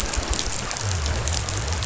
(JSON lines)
{"label": "biophony", "recorder": "SoundTrap 500"}